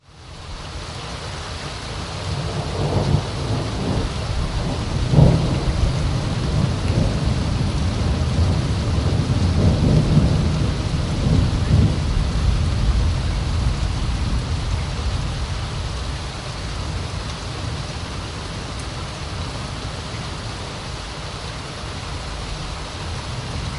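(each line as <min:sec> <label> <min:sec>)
0:00.0 Muffled ambient rain sounds in the distance. 0:23.8
0:01.9 Distant, muffled thunder gently echoing. 0:17.5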